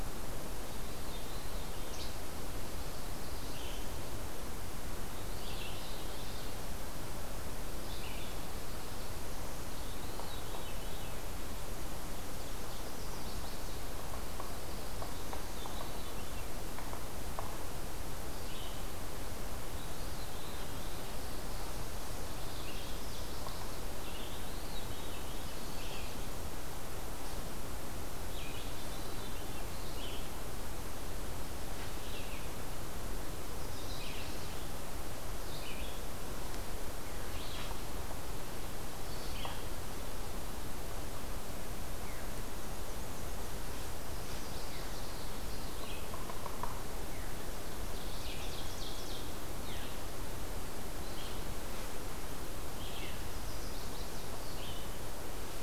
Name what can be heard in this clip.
Red-eyed Vireo, Veery, Least Flycatcher, Chestnut-sided Warbler, Yellow-bellied Sapsucker, Black-and-white Warbler, Ovenbird